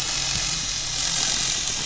{"label": "anthrophony, boat engine", "recorder": "SoundTrap 500"}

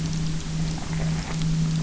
{"label": "anthrophony, boat engine", "recorder": "SoundTrap 300"}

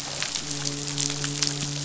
{"label": "biophony, midshipman", "recorder": "SoundTrap 500"}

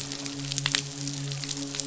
{"label": "biophony, midshipman", "recorder": "SoundTrap 500"}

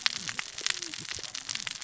{"label": "biophony, cascading saw", "recorder": "SoundTrap 600 or HydroMoth"}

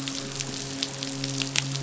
{"label": "biophony, midshipman", "recorder": "SoundTrap 500"}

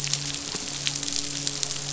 {"label": "biophony, midshipman", "recorder": "SoundTrap 500"}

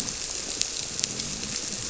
{"label": "biophony", "recorder": "SoundTrap 300"}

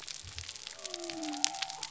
{"label": "biophony", "recorder": "SoundTrap 300"}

